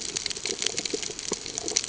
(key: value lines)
label: ambient
recorder: HydroMoth